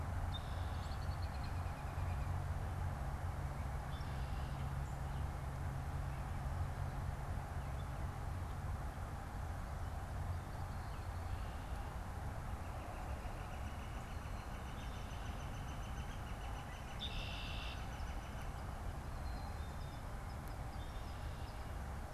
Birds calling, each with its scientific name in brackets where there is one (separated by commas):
Red-winged Blackbird (Agelaius phoeniceus), American Robin (Turdus migratorius), Northern Flicker (Colaptes auratus), Black-capped Chickadee (Poecile atricapillus)